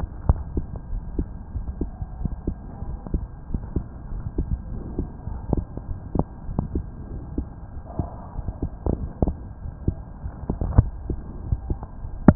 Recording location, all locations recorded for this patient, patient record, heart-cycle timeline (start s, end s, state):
aortic valve (AV)
aortic valve (AV)+pulmonary valve (PV)+tricuspid valve (TV)+mitral valve (MV)
#Age: Child
#Sex: Male
#Height: 133.0 cm
#Weight: 26.4 kg
#Pregnancy status: False
#Murmur: Absent
#Murmur locations: nan
#Most audible location: nan
#Systolic murmur timing: nan
#Systolic murmur shape: nan
#Systolic murmur grading: nan
#Systolic murmur pitch: nan
#Systolic murmur quality: nan
#Diastolic murmur timing: nan
#Diastolic murmur shape: nan
#Diastolic murmur grading: nan
#Diastolic murmur pitch: nan
#Diastolic murmur quality: nan
#Outcome: Abnormal
#Campaign: 2015 screening campaign
0.00	0.87	unannotated
0.87	1.04	S1
1.04	1.16	systole
1.16	1.28	S2
1.28	1.54	diastole
1.54	1.66	S1
1.66	1.80	systole
1.80	1.92	S2
1.92	2.18	diastole
2.18	2.32	S1
2.32	2.46	systole
2.46	2.56	S2
2.56	2.86	diastole
2.86	2.98	S1
2.98	3.12	systole
3.12	3.28	S2
3.28	3.50	diastole
3.50	3.62	S1
3.62	3.72	systole
3.72	3.84	S2
3.84	4.12	diastole
4.12	4.24	S1
4.24	4.38	systole
4.38	4.50	S2
4.50	4.72	diastole
4.72	4.84	S1
4.84	4.96	systole
4.96	5.08	S2
5.08	5.28	diastole
5.28	5.42	S1
5.42	5.50	systole
5.50	5.64	S2
5.64	5.90	diastole
5.90	6.00	S1
6.00	6.14	systole
6.14	6.26	S2
6.26	6.46	diastole
6.46	6.61	S1
6.61	6.74	systole
6.74	6.86	S2
6.86	7.12	diastole
7.12	7.22	S1
7.22	7.34	systole
7.34	7.46	S2
7.46	7.74	diastole
7.74	7.82	S1
7.82	7.97	systole
7.97	8.10	S2
8.10	8.35	diastole
8.35	8.45	S1
8.45	8.62	systole
8.62	8.70	S2
8.70	8.94	diastole
8.94	9.10	S1
9.10	9.22	systole
9.22	9.38	S2
9.38	9.62	diastole
9.62	9.72	S1
9.72	9.84	systole
9.84	9.98	S2
9.98	10.21	diastole
10.21	10.32	S1
10.32	10.44	systole
10.44	10.56	S2
10.56	12.35	unannotated